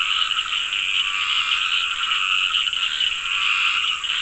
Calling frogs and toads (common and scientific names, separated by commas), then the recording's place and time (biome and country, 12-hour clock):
Dendropsophus nahdereri, Scinax perereca, Cochran's lime tree frog (Sphaenorhynchus surdus)
Atlantic Forest, Brazil, 7:30pm